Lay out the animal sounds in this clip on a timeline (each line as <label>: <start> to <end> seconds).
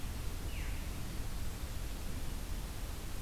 Veery (Catharus fuscescens): 0.4 to 0.8 seconds